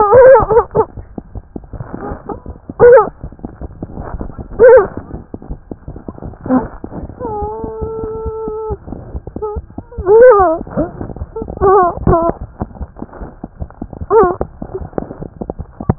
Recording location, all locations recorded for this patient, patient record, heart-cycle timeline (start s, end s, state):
aortic valve (AV)
aortic valve (AV)
#Age: Child
#Sex: Female
#Height: 83.0 cm
#Weight: 9.6 kg
#Pregnancy status: False
#Murmur: Unknown
#Murmur locations: nan
#Most audible location: nan
#Systolic murmur timing: nan
#Systolic murmur shape: nan
#Systolic murmur grading: nan
#Systolic murmur pitch: nan
#Systolic murmur quality: nan
#Diastolic murmur timing: nan
#Diastolic murmur shape: nan
#Diastolic murmur grading: nan
#Diastolic murmur pitch: nan
#Diastolic murmur quality: nan
#Outcome: Normal
#Campaign: 2015 screening campaign
0.00	12.39	unannotated
12.39	12.46	S1
12.46	12.58	systole
12.58	12.66	S2
12.66	12.79	diastole
12.79	12.86	S1
12.86	13.00	systole
13.00	13.05	S2
13.05	13.19	diastole
13.19	13.27	S1
13.27	13.42	systole
13.42	13.48	S2
13.48	13.59	diastole
13.59	13.66	S1
13.66	13.80	systole
13.80	13.86	S2
13.86	13.99	diastole
13.99	14.06	S1
14.06	14.80	unannotated
14.80	14.87	S1
14.87	15.00	systole
15.00	15.06	S2
15.06	15.18	diastole
15.18	15.27	S1
15.27	15.39	systole
15.39	15.47	S2
15.47	15.57	diastole
15.57	15.64	S1
15.64	15.79	systole
15.79	15.85	S2
15.85	15.98	unannotated